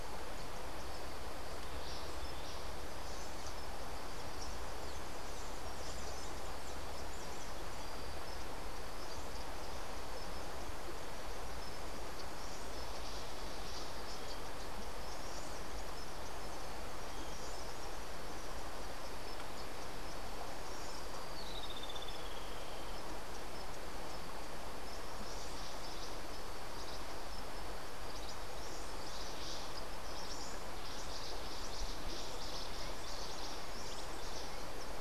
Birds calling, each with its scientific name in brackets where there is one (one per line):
Cabanis's Wren (Cantorchilus modestus)
Streak-headed Woodcreeper (Lepidocolaptes souleyetii)